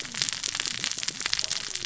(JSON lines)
{"label": "biophony, cascading saw", "recorder": "SoundTrap 600 or HydroMoth"}